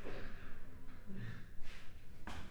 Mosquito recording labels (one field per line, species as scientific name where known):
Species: Culex pipiens complex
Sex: female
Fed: unfed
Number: one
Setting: cup